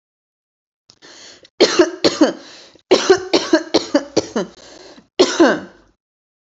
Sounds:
Cough